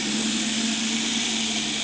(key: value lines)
label: anthrophony, boat engine
recorder: HydroMoth